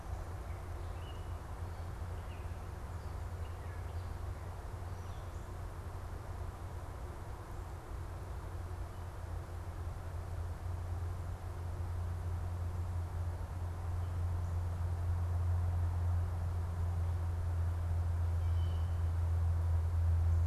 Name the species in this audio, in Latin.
Dumetella carolinensis, Cyanocitta cristata